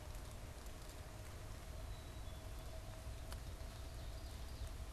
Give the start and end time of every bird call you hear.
1.9s-2.6s: Black-capped Chickadee (Poecile atricapillus)
3.3s-4.9s: Ovenbird (Seiurus aurocapilla)

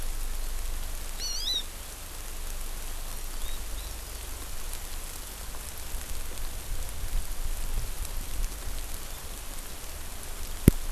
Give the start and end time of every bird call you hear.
1.2s-1.6s: Hawaii Amakihi (Chlorodrepanis virens)
3.0s-4.2s: Hawaii Amakihi (Chlorodrepanis virens)

